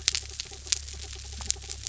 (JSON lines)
{"label": "anthrophony, mechanical", "recorder": "SoundTrap 300"}